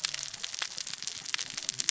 {"label": "biophony, cascading saw", "recorder": "SoundTrap 600 or HydroMoth"}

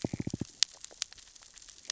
{"label": "biophony, knock", "recorder": "SoundTrap 600 or HydroMoth"}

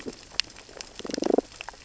{"label": "biophony, damselfish", "recorder": "SoundTrap 600 or HydroMoth"}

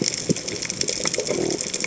{"label": "biophony", "recorder": "HydroMoth"}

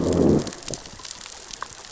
{"label": "biophony, growl", "recorder": "SoundTrap 600 or HydroMoth"}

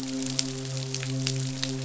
{"label": "biophony, midshipman", "recorder": "SoundTrap 500"}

